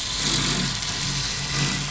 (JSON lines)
{"label": "anthrophony, boat engine", "recorder": "SoundTrap 500"}